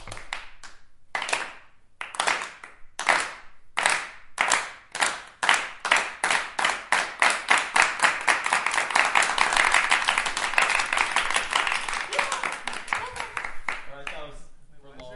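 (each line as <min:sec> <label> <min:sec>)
0:00.0 People clapping. 0:02.5
0:03.0 Rhythmic clapping from several people. 0:08.5
0:08.5 Unrhythmic clapping from several people. 0:12.1
0:12.1 A woman is yelling. 0:13.5
0:13.7 A clap. 0:14.3
0:13.8 A man speaks. 0:14.5
0:14.5 Two men are speaking. 0:15.2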